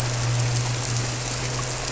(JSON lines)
{"label": "anthrophony, boat engine", "recorder": "SoundTrap 300"}